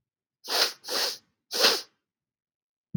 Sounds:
Sniff